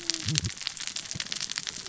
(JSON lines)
{"label": "biophony, cascading saw", "recorder": "SoundTrap 600 or HydroMoth"}